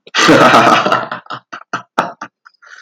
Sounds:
Laughter